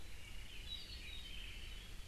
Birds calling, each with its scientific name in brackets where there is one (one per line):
Apapane (Himatione sanguinea)